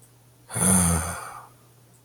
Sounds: Sigh